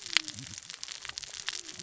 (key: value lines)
label: biophony, cascading saw
recorder: SoundTrap 600 or HydroMoth